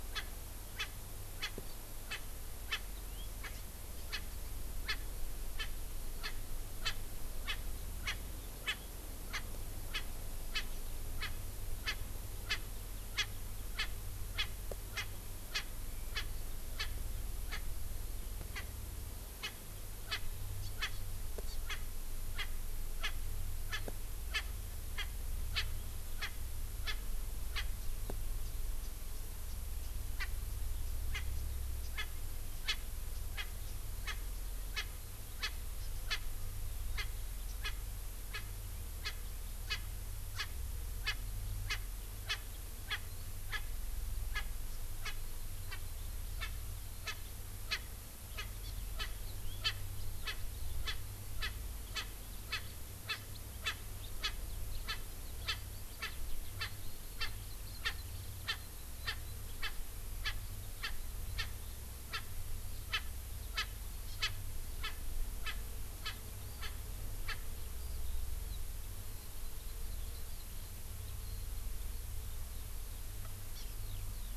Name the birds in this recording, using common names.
Erckel's Francolin, House Finch, Hawaii Amakihi, Eurasian Skylark